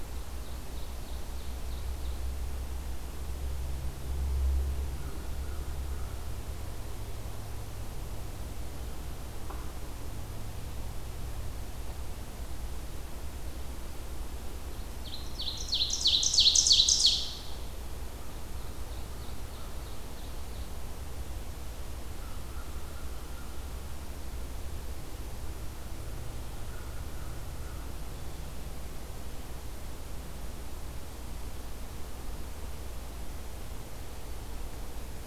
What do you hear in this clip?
Ovenbird, American Crow